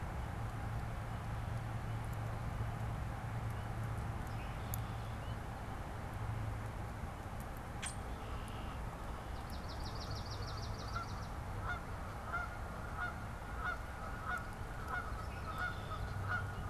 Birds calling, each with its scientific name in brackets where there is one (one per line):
Red-winged Blackbird (Agelaius phoeniceus)
Swamp Sparrow (Melospiza georgiana)
American Goldfinch (Spinus tristis)
Canada Goose (Branta canadensis)
Common Grackle (Quiscalus quiscula)